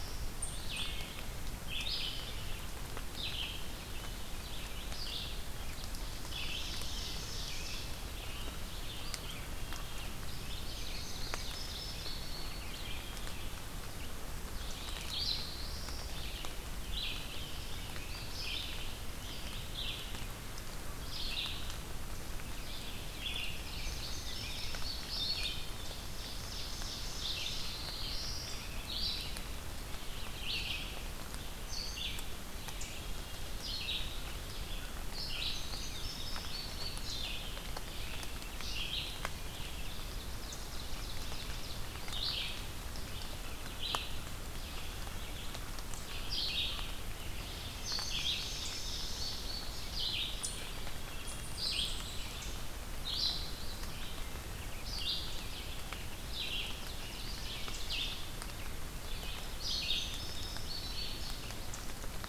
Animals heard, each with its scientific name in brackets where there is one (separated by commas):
Black-throated Blue Warbler (Setophaga caerulescens), Ovenbird (Seiurus aurocapilla), Eastern Chipmunk (Tamias striatus), American Crow (Corvus brachyrhynchos), Indigo Bunting (Passerina cyanea), Wood Thrush (Hylocichla mustelina), Red-eyed Vireo (Vireo olivaceus)